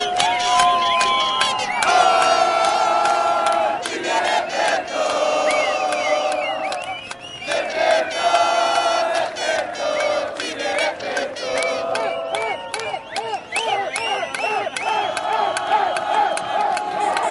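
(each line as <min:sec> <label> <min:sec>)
0:00.0 People clapping and whistling with pipes. 0:01.7
0:01.7 People chanting. 0:07.0
0:07.0 Brief pause during a chant. 0:07.4
0:07.4 People chant and clap while pipes whistle. 0:12.2
0:12.2 People cheer and whistle. 0:17.3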